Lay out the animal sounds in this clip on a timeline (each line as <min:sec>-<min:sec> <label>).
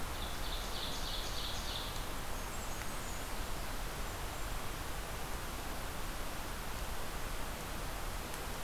0:00.0-0:02.1 Ovenbird (Seiurus aurocapilla)
0:02.1-0:04.7 Blackburnian Warbler (Setophaga fusca)